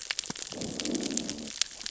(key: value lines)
label: biophony, growl
recorder: SoundTrap 600 or HydroMoth